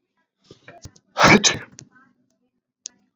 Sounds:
Sneeze